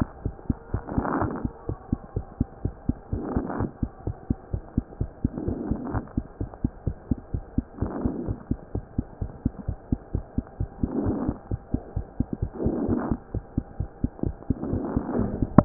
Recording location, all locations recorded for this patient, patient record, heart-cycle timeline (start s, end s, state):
mitral valve (MV)
aortic valve (AV)+pulmonary valve (PV)+tricuspid valve (TV)+mitral valve (MV)
#Age: Child
#Sex: Female
#Height: 99.0 cm
#Weight: 31.1 kg
#Pregnancy status: False
#Murmur: Absent
#Murmur locations: nan
#Most audible location: nan
#Systolic murmur timing: nan
#Systolic murmur shape: nan
#Systolic murmur grading: nan
#Systolic murmur pitch: nan
#Systolic murmur quality: nan
#Diastolic murmur timing: nan
#Diastolic murmur shape: nan
#Diastolic murmur grading: nan
#Diastolic murmur pitch: nan
#Diastolic murmur quality: nan
#Outcome: Normal
#Campaign: 2015 screening campaign
0.00	2.13	unannotated
2.13	2.24	S1
2.24	2.38	systole
2.38	2.48	S2
2.48	2.61	diastole
2.61	2.74	S1
2.74	2.86	systole
2.86	2.98	S2
2.98	3.09	diastole
3.09	3.20	S1
3.20	3.33	systole
3.33	3.42	S2
3.42	3.57	diastole
3.57	3.68	S1
3.68	3.80	systole
3.80	3.90	S2
3.90	4.04	diastole
4.04	4.16	S1
4.16	4.27	systole
4.27	4.36	S2
4.36	4.50	diastole
4.50	4.61	S1
4.61	4.75	systole
4.75	4.86	S2
4.86	4.98	diastole
4.98	5.07	S1
5.07	5.21	systole
5.21	5.32	S2
5.32	5.44	diastole
5.44	5.54	S1
5.54	5.68	systole
5.68	5.77	S2
5.77	5.91	diastole
5.91	6.04	S1
6.04	6.14	systole
6.14	6.22	S2
6.22	6.38	diastole
6.38	6.48	S1
6.48	6.61	systole
6.61	6.72	S2
6.72	6.83	diastole
6.83	6.94	S1
6.94	7.08	systole
7.08	7.18	S2
7.18	7.31	diastole
7.31	7.44	S1
7.44	15.65	unannotated